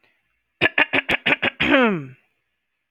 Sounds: Throat clearing